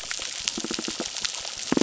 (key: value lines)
label: biophony
recorder: SoundTrap 600